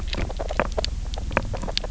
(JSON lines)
{"label": "biophony, knock croak", "recorder": "SoundTrap 300"}